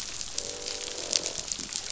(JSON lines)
{"label": "biophony, croak", "recorder": "SoundTrap 500"}